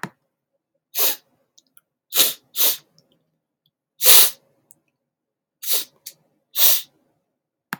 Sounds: Sniff